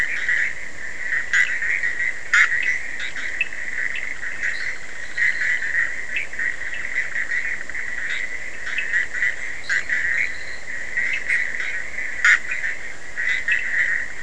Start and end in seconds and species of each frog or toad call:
0.0	14.2	Boana bischoffi
3.2	4.2	Sphaenorhynchus surdus
4.4	5.7	Boana leptolineata
6.0	7.0	Sphaenorhynchus surdus
8.4	9.2	Sphaenorhynchus surdus
9.6	10.7	Boana leptolineata
11.0	11.5	Sphaenorhynchus surdus
13.3	13.8	Sphaenorhynchus surdus

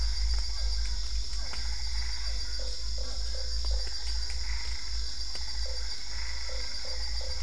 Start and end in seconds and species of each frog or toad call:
0.0	7.4	Physalaemus cuvieri
1.4	7.4	Boana albopunctata
2.6	3.9	Boana lundii
5.6	7.4	Boana lundii

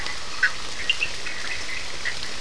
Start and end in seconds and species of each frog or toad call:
0.0	1.1	Boana prasina
0.0	2.4	Boana bischoffi
0.0	2.4	Elachistocleis bicolor
0.0	2.4	Sphaenorhynchus surdus

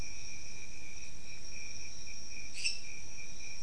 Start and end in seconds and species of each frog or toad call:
2.5	2.9	Dendropsophus minutus

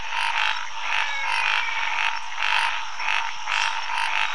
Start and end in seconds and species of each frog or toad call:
0.0	4.3	Scinax fuscovarius
0.7	2.3	Physalaemus albonotatus
3.4	3.9	Dendropsophus minutus

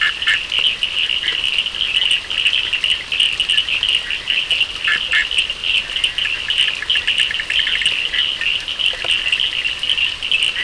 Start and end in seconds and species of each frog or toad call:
0.0	10.4	Boana bischoffi
0.0	10.6	Sphaenorhynchus surdus

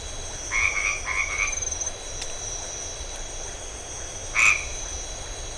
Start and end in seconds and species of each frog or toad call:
0.4	1.6	Boana albomarginata
4.3	4.7	Boana albomarginata

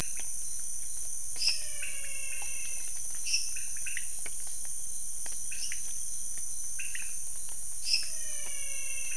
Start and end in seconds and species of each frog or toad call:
0.0	9.1	Leptodactylus podicipinus
1.2	1.8	Dendropsophus minutus
1.2	3.1	Physalaemus albonotatus
3.1	3.8	Dendropsophus minutus
5.5	6.0	Dendropsophus minutus
7.7	8.3	Dendropsophus minutus
7.9	9.1	Physalaemus albonotatus

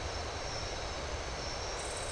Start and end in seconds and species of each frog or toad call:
none

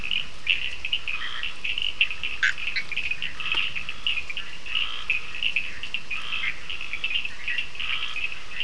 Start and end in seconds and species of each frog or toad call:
0.0	8.6	Sphaenorhynchus surdus
1.0	1.6	Scinax perereca
2.3	3.0	Boana bischoffi
3.2	6.7	Scinax perereca
7.7	8.3	Scinax perereca

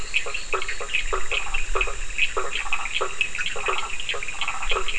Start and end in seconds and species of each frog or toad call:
0.0	0.9	Boana leptolineata
0.0	4.9	Boana bischoffi
0.0	4.9	Boana faber
0.0	4.9	Sphaenorhynchus surdus
1.3	4.9	Boana prasina

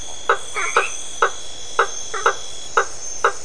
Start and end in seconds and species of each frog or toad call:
0.0	3.4	Boana faber
0.3	1.2	Boana albomarginata

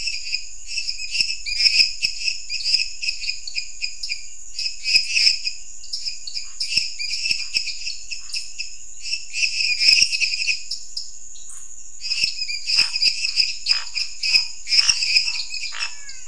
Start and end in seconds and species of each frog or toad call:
0.0	10.7	Dendropsophus minutus
0.0	16.2	Dendropsophus nanus
6.4	8.4	Scinax fuscovarius
11.3	16.2	Scinax fuscovarius
12.1	15.9	Dendropsophus minutus
15.7	16.2	Physalaemus albonotatus

